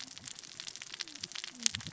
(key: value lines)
label: biophony, cascading saw
recorder: SoundTrap 600 or HydroMoth